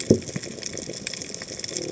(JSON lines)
{"label": "biophony", "recorder": "HydroMoth"}